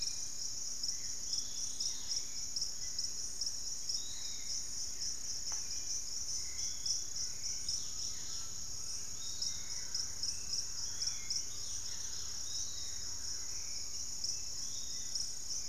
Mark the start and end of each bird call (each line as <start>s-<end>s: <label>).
0.0s-2.6s: Dusky-capped Greenlet (Pachysylvia hypoxantha)
0.0s-15.7s: Hauxwell's Thrush (Turdus hauxwelli)
0.0s-15.7s: Piratic Flycatcher (Legatus leucophaius)
7.4s-15.7s: Dusky-capped Greenlet (Pachysylvia hypoxantha)
7.8s-9.6s: Undulated Tinamou (Crypturellus undulatus)
9.3s-15.7s: Thrush-like Wren (Campylorhynchus turdinus)